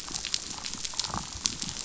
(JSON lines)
{"label": "biophony", "recorder": "SoundTrap 500"}